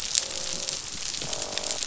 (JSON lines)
{"label": "biophony, croak", "recorder": "SoundTrap 500"}